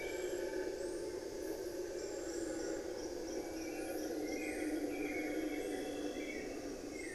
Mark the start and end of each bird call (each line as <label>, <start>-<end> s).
Hauxwell's Thrush (Turdus hauxwelli), 0.0-7.1 s
unidentified bird, 5.1-7.0 s